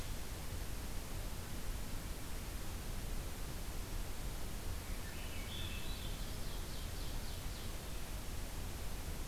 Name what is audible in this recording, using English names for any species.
Swainson's Thrush, Ovenbird